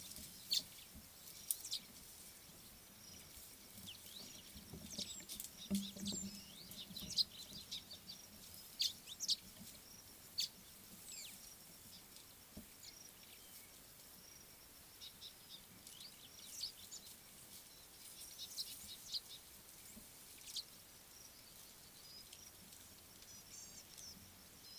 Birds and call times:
Chestnut Weaver (Ploceus rubiginosus): 9.3s
Gray-backed Camaroptera (Camaroptera brevicaudata): 23.6s

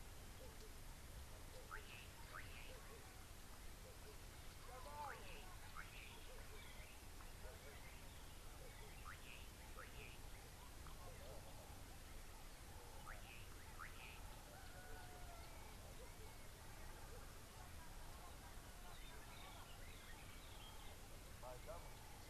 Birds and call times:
Slate-colored Boubou (Laniarius funebris): 1.7s, 13.3s
Southern Fiscal (Lanius collaris): 15.6s

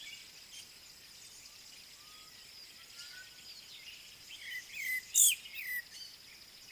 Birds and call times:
African Bare-eyed Thrush (Turdus tephronotus): 5.2s

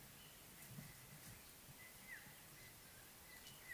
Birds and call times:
African Black-headed Oriole (Oriolus larvatus): 2.2s

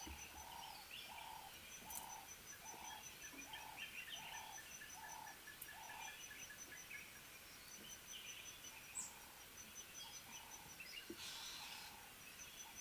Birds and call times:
Red-fronted Tinkerbird (Pogoniulus pusillus): 4.9s
Ring-necked Dove (Streptopelia capicola): 11.4s

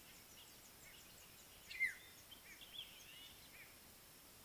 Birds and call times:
African Black-headed Oriole (Oriolus larvatus): 1.9s
Violet-backed Starling (Cinnyricinclus leucogaster): 3.2s

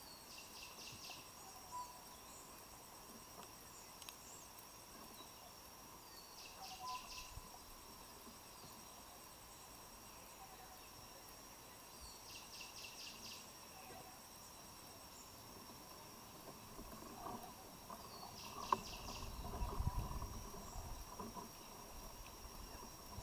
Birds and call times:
Tropical Boubou (Laniarius major): 6.8s, 13.8s
Cinnamon Bracken-Warbler (Bradypterus cinnamomeus): 12.6s

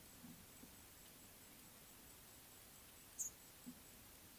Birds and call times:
Speckle-fronted Weaver (Sporopipes frontalis): 3.2s

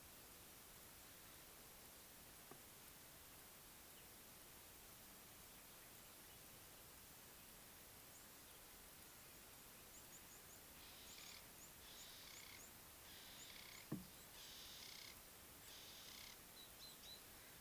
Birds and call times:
Ring-necked Dove (Streptopelia capicola): 13.5s

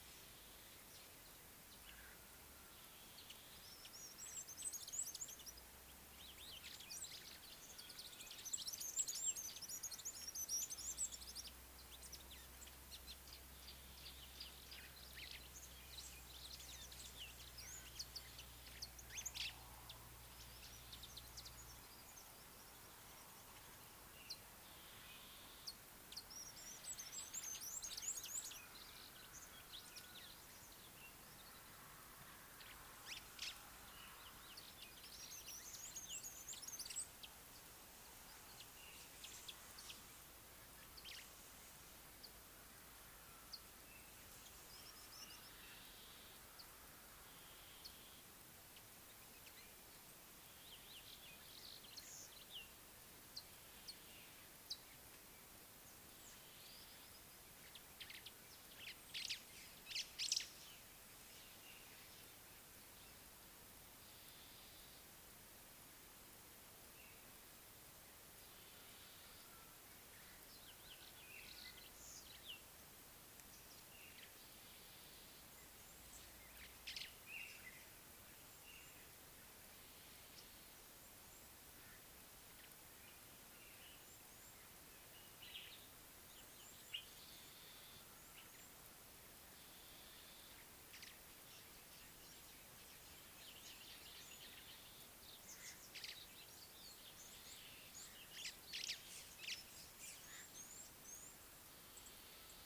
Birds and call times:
Mariqua Sunbird (Cinnyris mariquensis): 4.7s, 9.8s, 27.5s, 36.2s
White-browed Sparrow-Weaver (Plocepasser mahali): 19.4s, 33.5s, 60.0s, 77.0s, 96.1s, 98.9s
Scarlet-chested Sunbird (Chalcomitra senegalensis): 53.9s
Speckle-fronted Weaver (Sporopipes frontalis): 98.0s
Red-cheeked Cordonbleu (Uraeginthus bengalus): 100.7s

